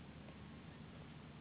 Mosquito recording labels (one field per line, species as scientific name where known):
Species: Anopheles gambiae s.s.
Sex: female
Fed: unfed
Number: one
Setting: insect culture